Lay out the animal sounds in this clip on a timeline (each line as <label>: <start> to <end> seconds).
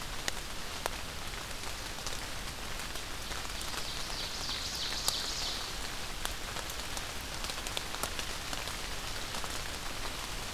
Ovenbird (Seiurus aurocapilla): 3.0 to 5.7 seconds